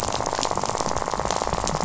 {"label": "biophony, rattle", "recorder": "SoundTrap 500"}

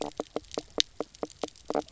{"label": "biophony, knock croak", "recorder": "SoundTrap 300"}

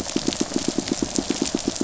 {"label": "biophony, pulse", "recorder": "SoundTrap 500"}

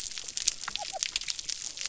{"label": "biophony", "recorder": "SoundTrap 300"}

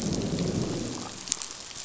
{"label": "biophony, growl", "recorder": "SoundTrap 500"}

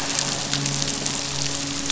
{"label": "biophony, midshipman", "recorder": "SoundTrap 500"}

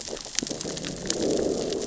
{"label": "biophony, growl", "recorder": "SoundTrap 600 or HydroMoth"}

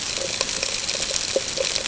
{"label": "ambient", "recorder": "HydroMoth"}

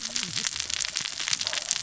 {"label": "biophony, cascading saw", "recorder": "SoundTrap 600 or HydroMoth"}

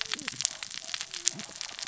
{"label": "biophony, cascading saw", "recorder": "SoundTrap 600 or HydroMoth"}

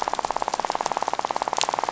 {"label": "biophony, rattle", "recorder": "SoundTrap 500"}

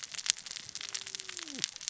{"label": "biophony, cascading saw", "recorder": "SoundTrap 600 or HydroMoth"}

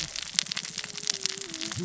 {"label": "biophony, cascading saw", "recorder": "SoundTrap 600 or HydroMoth"}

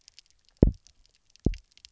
{"label": "biophony, double pulse", "recorder": "SoundTrap 300"}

